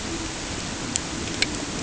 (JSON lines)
{"label": "ambient", "recorder": "HydroMoth"}